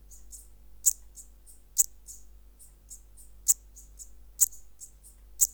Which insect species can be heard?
Eupholidoptera garganica